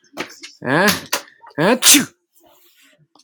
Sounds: Sneeze